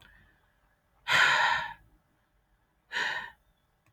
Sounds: Sigh